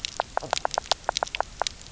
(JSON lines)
{"label": "biophony, knock croak", "recorder": "SoundTrap 300"}